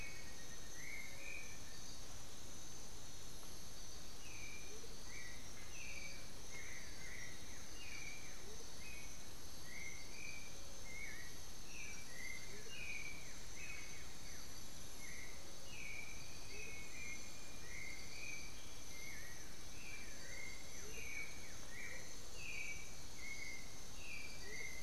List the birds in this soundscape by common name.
Blue-gray Saltator, Black-faced Antthrush, Amazonian Motmot, Black-billed Thrush, unidentified bird, Ringed Kingfisher